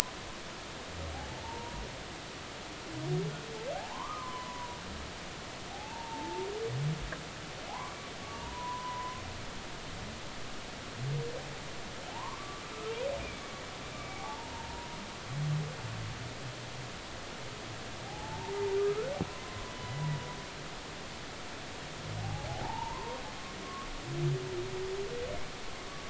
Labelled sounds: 1.3	1.8	humpback whale, 0.83 to 1.0 kHz
3.8	4.8	humpback whale, 0.80 to 1.3 kHz
5.7	6.5	humpback whale, 0.80 to 0.96 kHz
7.7	9.2	humpback whale, 0.80 to 1.2 kHz
12.1	12.6	humpback whale, 0.80 to 1.2 kHz
13.9	14.9	humpback whale, 0.80 to 2.5 kHz
18.0	18.5	humpback whale, 0.80 to 0.99 kHz
19.2	19.9	humpback whale, 0.96 to 1.1 kHz
22.2	23.2	humpback whale, 0.80 to 1.1 kHz
23.6	23.9	humpback whale, 1.1 to 1.2 kHz

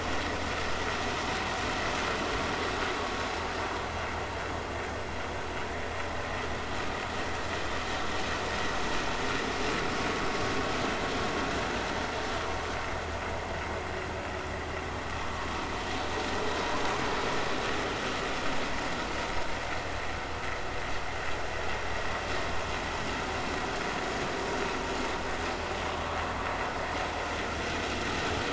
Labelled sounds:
16.5	16.8	vessel noise, 0.93 to 1.1 kHz

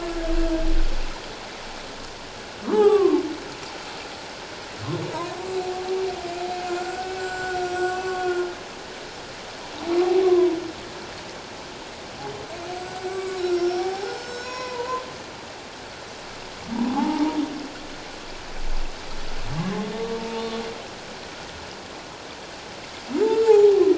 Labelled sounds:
2.6	3.2	humpback whale, 0.78 to 3.0 kHz
6.7	8.5	humpback whale, 1.0 to 8.0 kHz
10.2	10.6	humpback whale, 0.91 to 1.2 kHz
12.8	15.0	humpback whale, 0.78 to 7.9 kHz
16.9	17.4	humpback whale, 0.78 to 1.3 kHz
20.2	20.4	humpback whale, 0.84 to 0.94 kHz
23.4	23.8	humpback whale, 0.78 to 0.94 kHz

